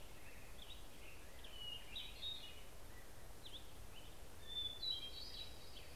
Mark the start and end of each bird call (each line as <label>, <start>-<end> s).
Black-headed Grosbeak (Pheucticus melanocephalus), 0.0-6.0 s
Hermit Thrush (Catharus guttatus), 1.3-3.1 s
Hermit Thrush (Catharus guttatus), 4.4-6.0 s
Hermit Warbler (Setophaga occidentalis), 5.4-6.0 s